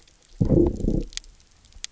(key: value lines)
label: biophony, low growl
recorder: SoundTrap 300